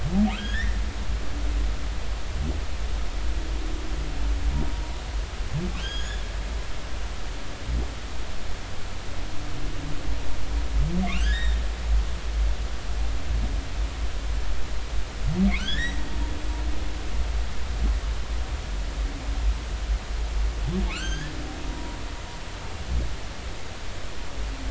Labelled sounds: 0.3	0.8	humpback whale, 1.2 to 3.8 kHz
5.8	6.2	humpback whale, 1.5 to 7.0 kHz
11.0	11.6	humpback whale, 1.5 to 3.8 kHz
15.6	16.0	humpback whale, 1.3 to 3.9 kHz
20.9	22.3	humpback whale, 0.93 to 6.6 kHz

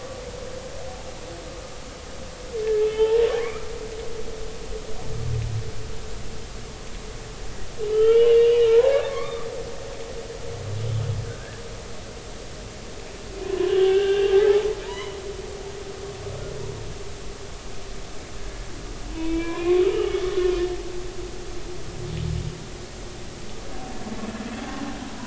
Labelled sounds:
2.9	3.7	humpback whale, 0.83 to 2.5 kHz
7.9	9.5	humpback whale, 1.0 to 3.4 kHz
11.2	11.6	humpback whale, 1.4 to 1.8 kHz
13.5	14.4	humpback whale, 0.96 to 3.5 kHz
14.8	15.2	humpback whale, 0.86 to 3.2 kHz
19.1	20.2	humpback whale, 0.93 to 3.7 kHz

